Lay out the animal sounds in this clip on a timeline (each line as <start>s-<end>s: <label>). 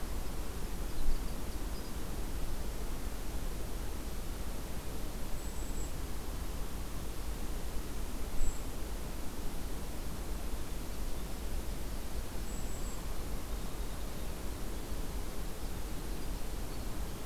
0.0s-2.2s: Winter Wren (Troglodytes hiemalis)
5.3s-6.0s: Golden-crowned Kinglet (Regulus satrapa)
8.3s-8.7s: Golden-crowned Kinglet (Regulus satrapa)
10.4s-17.3s: Winter Wren (Troglodytes hiemalis)
12.3s-13.1s: Golden-crowned Kinglet (Regulus satrapa)